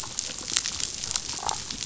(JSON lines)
{"label": "biophony, damselfish", "recorder": "SoundTrap 500"}